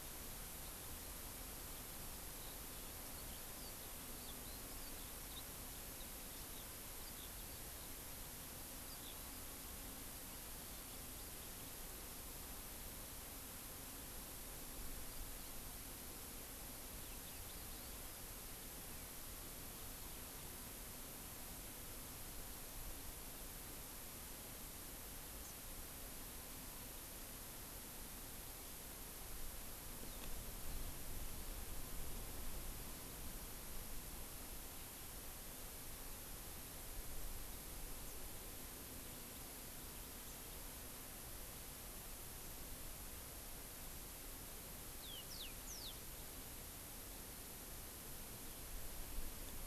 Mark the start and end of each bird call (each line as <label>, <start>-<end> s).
Eurasian Skylark (Alauda arvensis), 5.7-8.0 s
Hawaii Amakihi (Chlorodrepanis virens), 25.3-25.6 s
Yellow-fronted Canary (Crithagra mozambica), 44.9-46.0 s